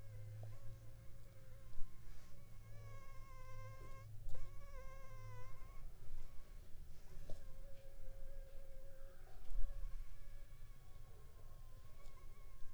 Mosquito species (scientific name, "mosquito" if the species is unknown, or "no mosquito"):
Anopheles funestus s.l.